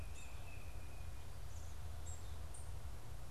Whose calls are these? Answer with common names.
Tufted Titmouse, unidentified bird